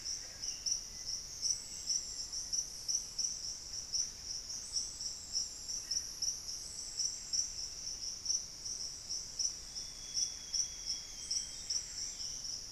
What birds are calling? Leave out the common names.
Myrmelastes hyperythrus, Formicarius analis, Cantorchilus leucotis, Dendrexetastes rufigula, Cyanoloxia rothschildii